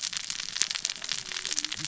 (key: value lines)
label: biophony, cascading saw
recorder: SoundTrap 600 or HydroMoth